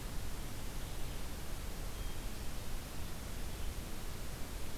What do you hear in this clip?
Red-eyed Vireo